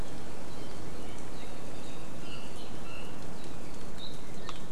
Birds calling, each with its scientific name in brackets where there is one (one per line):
Iiwi (Drepanis coccinea)